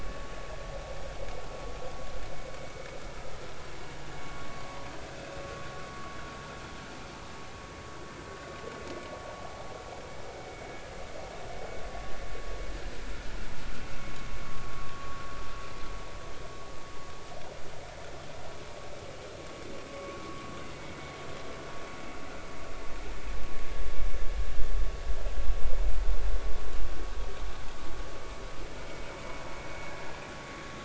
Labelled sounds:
4.2	4.6	vessel noise, 1.1 to 1.2 kHz
9.5	9.7	vessel noise, 0.80 to 0.93 kHz
14.9	15.2	vessel noise, 1.1 to 1.2 kHz
19.9	20.2	vessel noise, 0.99 to 1.2 kHz

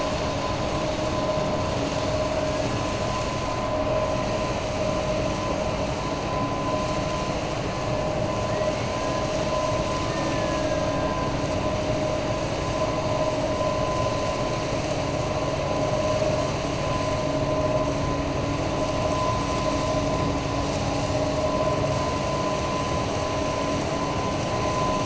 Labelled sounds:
10.0	10.8	killer whale, 1.2 to 2.7 kHz

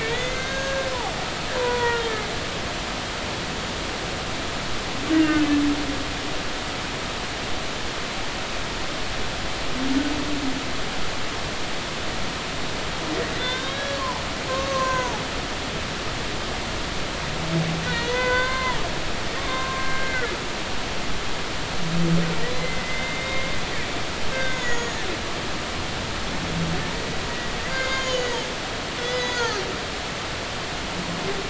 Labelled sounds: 0.0	0.9	humpback whale, 1.5 to 6.5 kHz
1.6	2.1	humpback whale, 0.90 to 2.0 kHz
5.1	5.5	humpback whale, 1.4 to 2.0 kHz
13.3	15.2	humpback whale, 0.80 to 6.8 kHz
17.8	20.3	humpback whale, 0.83 to 4.7 kHz
22.5	23.5	humpback whale, 2.0 to 3.7 kHz
24.3	25.0	humpback whale, 1.5 to 7.0 kHz
27.6	28.4	humpback whale, 0.99 to 6.9 kHz
29.0	29.6	humpback whale, 1.2 to 6.9 kHz

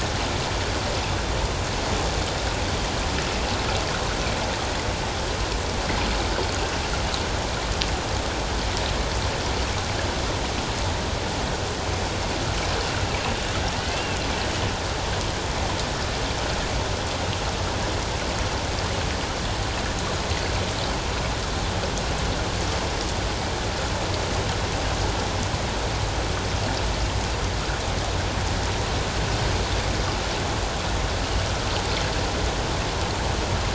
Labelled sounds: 13.9	14.2	killer whale, 2.5 to 2.8 kHz

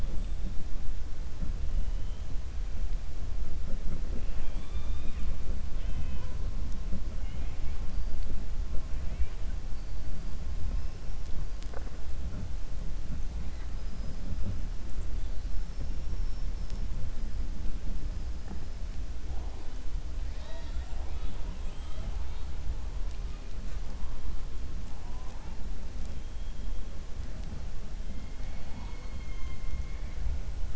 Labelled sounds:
20.2	21.4	killer whale, 0.60 to 5.7 kHz

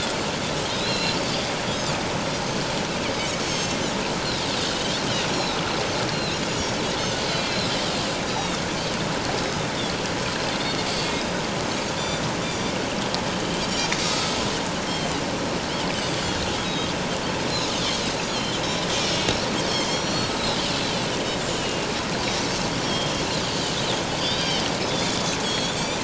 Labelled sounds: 0.7	1.5	Pacific white-sided dolphin, 2.7 to 4.9 kHz
3.4	3.8	Pacific white-sided dolphin, 5.2 to 6.6 kHz
4.7	5.6	Pacific white-sided dolphin, 2.9 to 5.7 kHz
6.1	7.7	Pacific white-sided dolphin, 2.5 to 4.5 kHz
8.3	8.6	Pacific white-sided dolphin, 3.5 to 6.9 kHz
11.7	12.7	Pacific white-sided dolphin, 3.3 to 6.6 kHz
13.6	14.3	Pacific white-sided dolphin, 3.5 to 7.2 kHz
16.6	16.9	Pacific white-sided dolphin, 3.6 to 5.2 kHz
18.3	18.6	Pacific white-sided dolphin, 3.0 to 4.8 kHz
19.0	21.9	Pacific white-sided dolphin, 2.0 to 7.9 kHz
22.8	23.7	Pacific white-sided dolphin, 3.1 to 4.9 kHz
24.2	26.0	Pacific white-sided dolphin, 2.9 to 5.7 kHz

